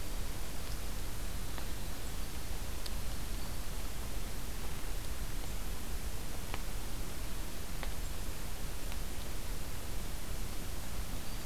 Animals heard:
forest ambience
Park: Acadia National Park